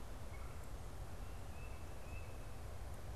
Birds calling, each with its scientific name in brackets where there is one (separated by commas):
Tufted Titmouse (Baeolophus bicolor), Red-bellied Woodpecker (Melanerpes carolinus)